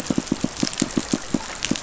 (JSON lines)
{"label": "biophony, pulse", "recorder": "SoundTrap 500"}